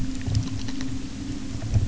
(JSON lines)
{"label": "anthrophony, boat engine", "recorder": "SoundTrap 300"}